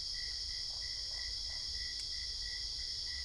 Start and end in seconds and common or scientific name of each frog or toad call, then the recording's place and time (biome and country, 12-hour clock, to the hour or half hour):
0.5	1.9	Usina tree frog
Cerrado, Brazil, ~midnight